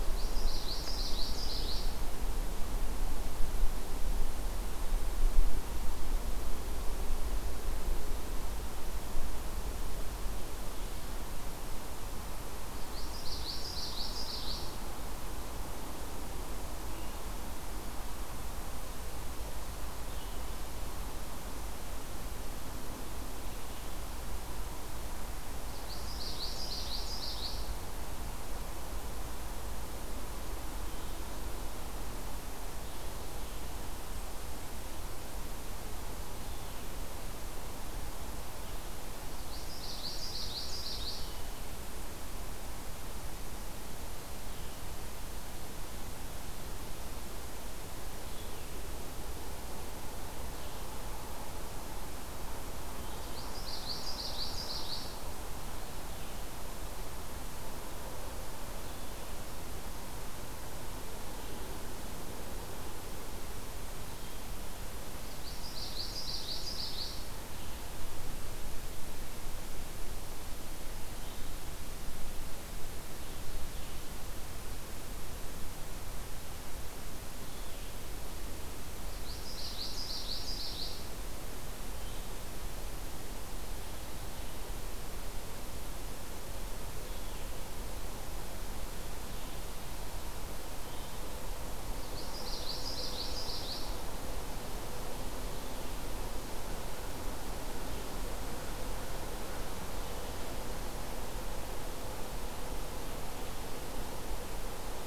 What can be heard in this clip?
Common Yellowthroat